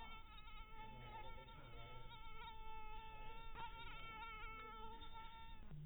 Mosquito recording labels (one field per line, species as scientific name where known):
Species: mosquito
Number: one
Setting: cup